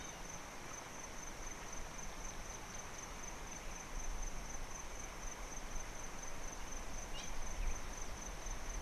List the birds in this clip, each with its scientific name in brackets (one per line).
Hamerkop (Scopus umbretta)